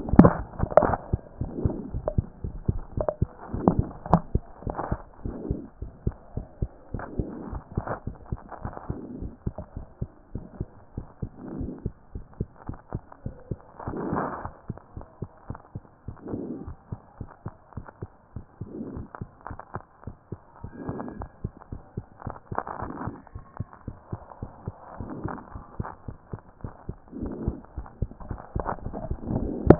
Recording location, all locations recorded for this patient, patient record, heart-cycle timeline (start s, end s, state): mitral valve (MV)
aortic valve (AV)+mitral valve (MV)
#Age: Child
#Sex: Female
#Height: 92.0 cm
#Weight: 15.2 kg
#Pregnancy status: False
#Murmur: Absent
#Murmur locations: nan
#Most audible location: nan
#Systolic murmur timing: nan
#Systolic murmur shape: nan
#Systolic murmur grading: nan
#Systolic murmur pitch: nan
#Systolic murmur quality: nan
#Diastolic murmur timing: nan
#Diastolic murmur shape: nan
#Diastolic murmur grading: nan
#Diastolic murmur pitch: nan
#Diastolic murmur quality: nan
#Outcome: Abnormal
#Campaign: 2014 screening campaign
0.00	5.75	unannotated
5.75	5.82	diastole
5.82	5.92	S1
5.92	6.04	systole
6.04	6.14	S2
6.14	6.36	diastole
6.36	6.46	S1
6.46	6.60	systole
6.60	6.70	S2
6.70	6.92	diastole
6.92	7.04	S1
7.04	7.18	systole
7.18	7.28	S2
7.28	7.50	diastole
7.50	7.62	S1
7.62	7.76	systole
7.76	7.86	S2
7.86	8.06	diastole
8.06	8.18	S1
8.18	8.32	systole
8.32	8.40	S2
8.40	8.64	diastole
8.64	8.74	S1
8.74	8.88	systole
8.88	8.96	S2
8.96	9.20	diastole
9.20	9.32	S1
9.32	9.46	systole
9.46	9.54	S2
9.54	9.76	diastole
9.76	9.86	S1
9.86	10.00	systole
10.00	10.10	S2
10.10	10.34	diastole
10.34	10.44	S1
10.44	10.58	systole
10.58	10.68	S2
10.68	10.98	diastole
10.98	11.06	S1
11.06	11.22	systole
11.22	11.30	S2
11.30	11.56	diastole
11.56	11.70	S1
11.70	11.84	systole
11.84	11.94	S2
11.94	12.14	diastole
12.14	12.24	S1
12.24	12.38	systole
12.38	12.48	S2
12.48	12.68	diastole
12.68	12.78	S1
12.78	12.92	systole
12.92	13.02	S2
13.02	13.24	diastole
13.24	13.34	S1
13.34	13.50	systole
13.50	13.58	S2
13.58	13.87	diastole
13.87	29.79	unannotated